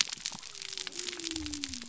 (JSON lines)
{"label": "biophony", "recorder": "SoundTrap 300"}